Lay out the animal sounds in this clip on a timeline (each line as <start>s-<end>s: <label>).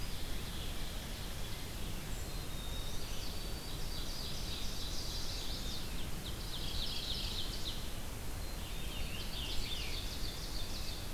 0.0s-1.5s: Hairy Woodpecker (Dryobates villosus)
0.0s-2.4s: Ovenbird (Seiurus aurocapilla)
0.0s-9.7s: Red-eyed Vireo (Vireo olivaceus)
2.1s-3.0s: Black-capped Chickadee (Poecile atricapillus)
2.3s-4.3s: White-throated Sparrow (Zonotrichia albicollis)
2.6s-3.4s: Chestnut-sided Warbler (Setophaga pensylvanica)
3.5s-5.5s: Ovenbird (Seiurus aurocapilla)
4.7s-5.9s: Chestnut-sided Warbler (Setophaga pensylvanica)
5.9s-8.0s: Ovenbird (Seiurus aurocapilla)
6.3s-7.6s: Mourning Warbler (Geothlypis philadelphia)
8.2s-9.1s: Black-capped Chickadee (Poecile atricapillus)
8.4s-10.2s: Scarlet Tanager (Piranga olivacea)
8.9s-11.1s: Ovenbird (Seiurus aurocapilla)